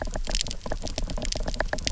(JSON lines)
{"label": "biophony, knock", "recorder": "SoundTrap 300"}